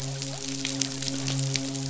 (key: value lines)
label: biophony, midshipman
recorder: SoundTrap 500